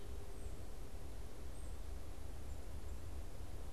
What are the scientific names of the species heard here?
Baeolophus bicolor